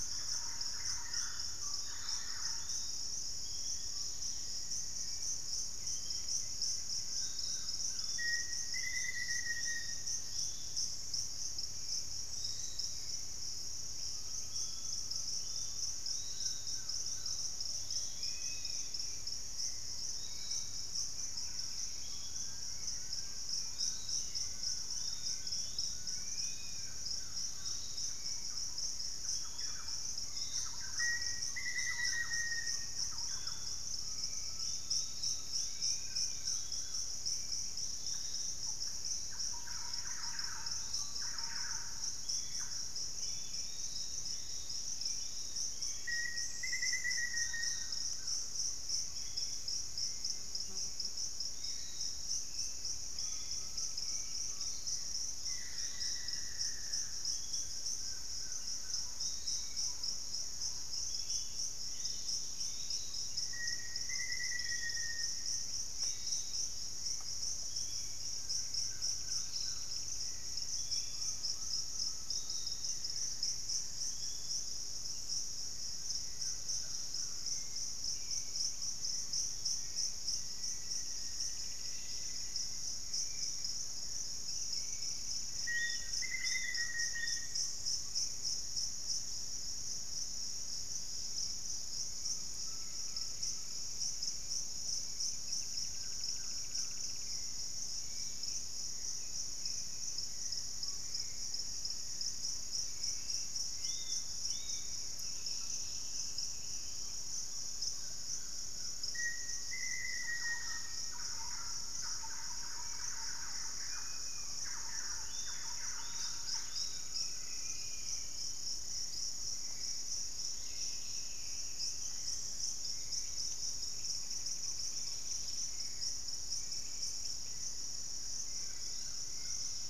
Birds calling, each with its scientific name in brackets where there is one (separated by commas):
Black-faced Antthrush (Formicarius analis), Fasciated Antshrike (Cymbilaimus lineatus), unidentified bird, Piratic Flycatcher (Legatus leucophaius), Hauxwell's Thrush (Turdus hauxwelli), Dusky-capped Flycatcher (Myiarchus tuberculifer), Golden-crowned Spadebill (Platyrinchus coronatus), Amazonian Barred-Woodcreeper (Dendrocolaptes certhia), Black-capped Becard (Pachyramphus marginatus), Dusky-capped Greenlet (Pachysylvia hypoxantha), Black-tailed Trogon (Trogon melanurus), Yellow-margined Flycatcher (Tolmomyias assimilis), Undulated Tinamou (Crypturellus undulatus), Thrush-like Wren (Campylorhynchus turdinus), Gray Antwren (Myrmotherula menetriesii), Pygmy Antwren (Myrmotherula brachyura), Collared Trogon (Trogon collaris)